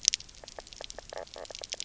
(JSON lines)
{"label": "biophony, knock croak", "recorder": "SoundTrap 300"}